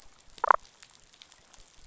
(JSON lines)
{"label": "biophony, damselfish", "recorder": "SoundTrap 500"}